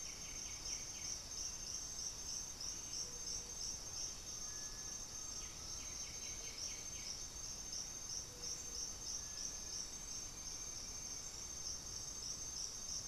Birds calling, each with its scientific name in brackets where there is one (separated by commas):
Hauxwell's Thrush (Turdus hauxwelli), Black-throated Antbird (Myrmophylax atrothorax), Cinereous Tinamou (Crypturellus cinereus), White-winged Becard (Pachyramphus polychopterus)